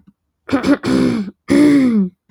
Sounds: Throat clearing